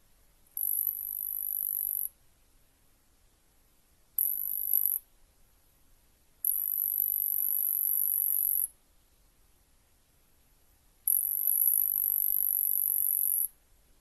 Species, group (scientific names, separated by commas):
Cyphoderris monstrosa, Orthoptera